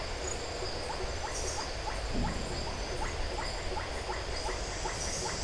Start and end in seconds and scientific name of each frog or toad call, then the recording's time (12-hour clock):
0.0	5.3	Leptodactylus notoaktites
0.0	5.4	Boana faber
6:30pm